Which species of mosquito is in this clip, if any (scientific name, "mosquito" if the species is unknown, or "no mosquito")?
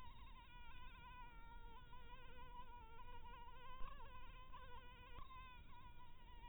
Anopheles maculatus